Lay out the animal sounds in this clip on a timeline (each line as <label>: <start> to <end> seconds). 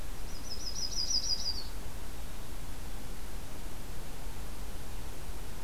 Yellow-rumped Warbler (Setophaga coronata): 0.3 to 1.7 seconds